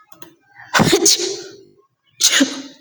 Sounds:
Sneeze